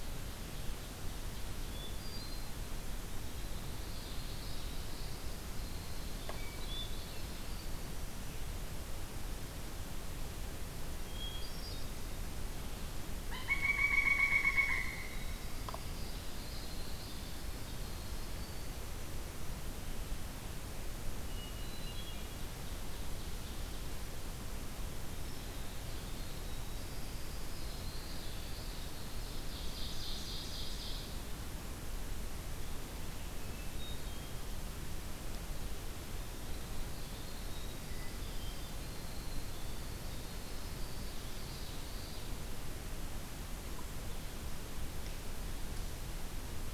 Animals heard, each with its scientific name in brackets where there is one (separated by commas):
Pileated Woodpecker (Dryocopus pileatus), Ovenbird (Seiurus aurocapilla), Common Yellowthroat (Geothlypis trichas), Winter Wren (Troglodytes hiemalis), Hermit Thrush (Catharus guttatus)